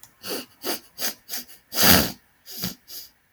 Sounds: Sniff